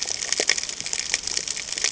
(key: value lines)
label: ambient
recorder: HydroMoth